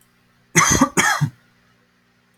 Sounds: Cough